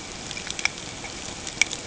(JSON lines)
{"label": "ambient", "recorder": "HydroMoth"}